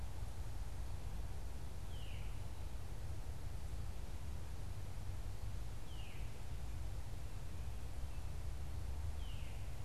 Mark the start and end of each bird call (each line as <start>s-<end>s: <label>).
0.0s-9.8s: Veery (Catharus fuscescens)